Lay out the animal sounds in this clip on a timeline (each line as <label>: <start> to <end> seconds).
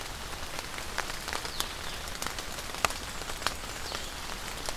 Blue-headed Vireo (Vireo solitarius): 1.3 to 4.8 seconds
Black-and-white Warbler (Mniotilta varia): 2.5 to 4.0 seconds